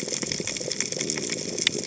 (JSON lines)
{"label": "biophony", "recorder": "HydroMoth"}